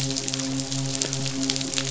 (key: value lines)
label: biophony, midshipman
recorder: SoundTrap 500